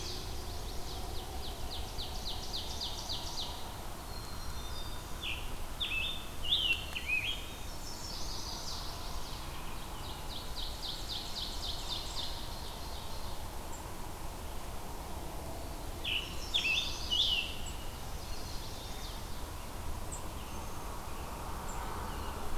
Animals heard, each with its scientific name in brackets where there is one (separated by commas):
Black-capped Chickadee (Poecile atricapillus), Black-throated Green Warbler (Setophaga virens), American Robin (Turdus migratorius), Eastern Wood-Pewee (Contopus virens), Scarlet Tanager (Piranga olivacea), Chestnut-sided Warbler (Setophaga pensylvanica), Ovenbird (Seiurus aurocapilla)